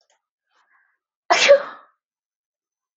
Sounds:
Sneeze